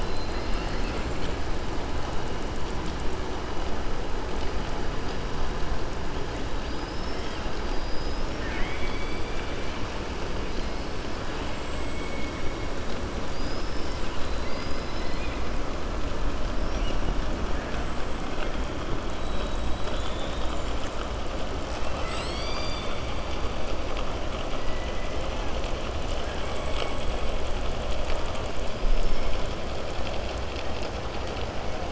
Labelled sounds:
0.0	1.3	killer whale, southern resident, 1.4 to 5.3 kHz
7.6	9.8	killer whale, southern resident, 1.5 to 5.7 kHz
14.0	15.4	killer whale, southern resident, 2.0 to 5.2 kHz
24.6	25.1	killer whale, southern resident, 1.9 to 2.4 kHz

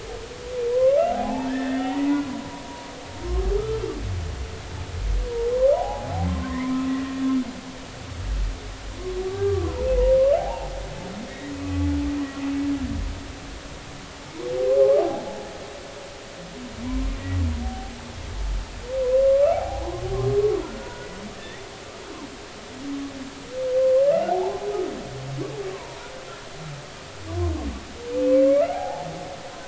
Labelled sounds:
0.7	2.2	humpback whale, 0.80 to 3.0 kHz
3.3	3.5	humpback whale, 1.0 to 1.3 kHz
5.7	7.1	humpback whale, 0.80 to 2.0 kHz
9.3	10.7	humpback whale, 0.80 to 1.2 kHz
11.3	11.9	humpback whale, 1.1 to 2.0 kHz
12.5	12.8	humpback whale, 2.5 to 2.6 kHz
15.0	15.2	humpback whale, 0.80 to 0.90 kHz
16.8	17.4	humpback whale, 0.90 to 2.0 kHz
19.5	21.1	humpback whale, 0.80 to 1.5 kHz
21.3	21.6	humpback whale, 1.7 to 2.1 kHz
24.3	24.6	humpback whale, 0.80 to 0.96 kHz
25.7	26.1	humpback whale, 0.86 to 1.1 kHz
28.7	29.0	humpback whale, 0.80 to 0.93 kHz

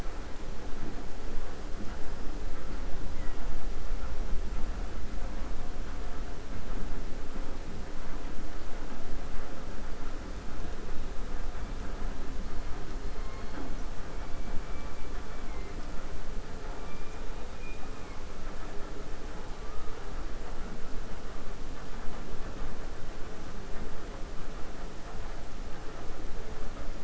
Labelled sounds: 17.5	18.2	killer whale, 2.1 to 2.5 kHz

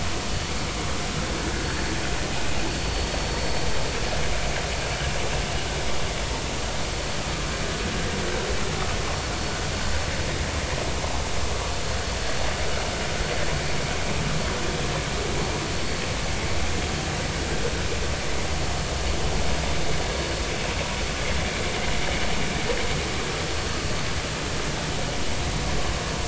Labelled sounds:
2.7	3.1	vessel noise, 4.4 to 4.5 kHz

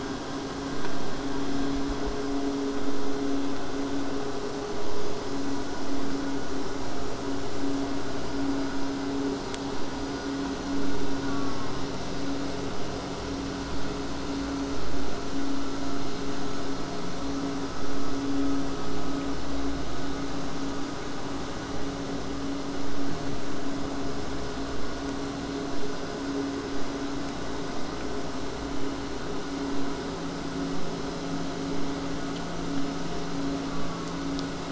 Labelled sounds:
11.2	11.9	killer whale, southern resident, J pod, call S04, 0.24 to 1.5 kHz
33.7	34.6	killer whale, southern resident, J pod, call S04, 0.36 to 1.5 kHz

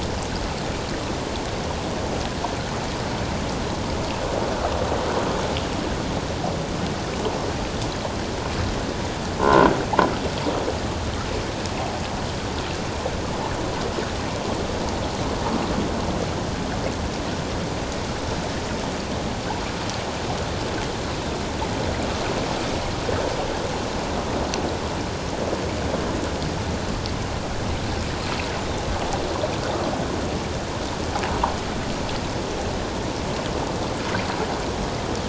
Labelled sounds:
9.4	9.8	croaking sound likely from a nearby submerged object, 0.84 to 1.6 kHz

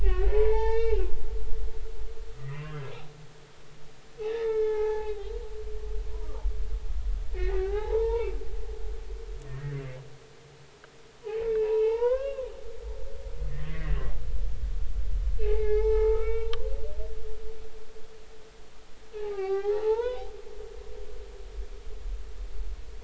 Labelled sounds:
0.0	1.1	humpback whale, 0.80 to 5.9 kHz
2.3	2.8	humpback whale, 0.96 to 2.8 kHz
4.3	5.1	humpback whale, 0.80 to 5.3 kHz
6.0	6.5	humpback whale, 0.83 to 1.3 kHz
7.3	8.4	humpback whale, 0.80 to 3.0 kHz
9.5	9.8	humpback whale, 1.8 to 1.9 kHz
11.2	12.5	humpback whale, 0.80 to 3.0 kHz
13.5	14.0	humpback whale, 1.8 to 2.1 kHz
15.4	16.5	humpback whale, 0.80 to 4.0 kHz
19.2	20.3	humpback whale, 0.80 to 5.0 kHz

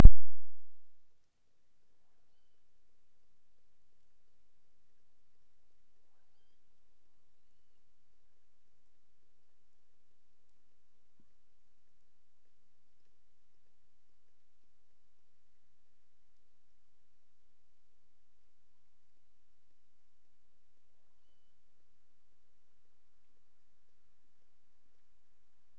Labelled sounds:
2.1	2.7	killer whale, offshore, 1.2 to 4.8 kHz
6.0	6.7	killer whale, offshore, 0.59 to 5.0 kHz
7.4	8.0	killer whale, offshore, 2.5 to 4.6 kHz
11.1	11.6	killer whale, offshore, 0.77 to 2.1 kHz
21.2	21.7	killer whale, offshore, 2.6 to 4.7 kHz

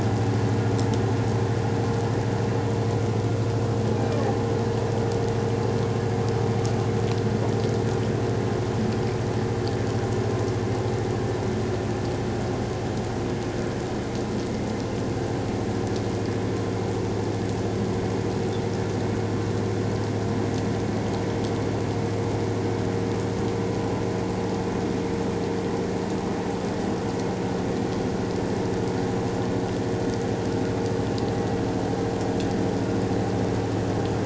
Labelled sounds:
3.9	4.2	humpback whale, 2.3 to 2.5 kHz

